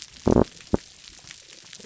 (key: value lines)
label: biophony, damselfish
recorder: SoundTrap 300

label: biophony
recorder: SoundTrap 300